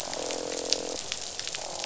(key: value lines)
label: biophony, croak
recorder: SoundTrap 500